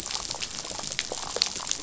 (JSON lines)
{"label": "biophony, damselfish", "recorder": "SoundTrap 500"}